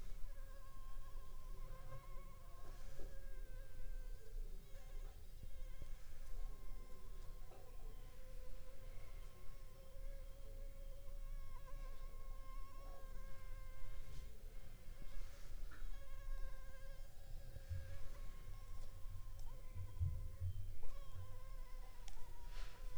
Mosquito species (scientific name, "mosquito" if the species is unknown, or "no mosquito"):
Anopheles funestus s.l.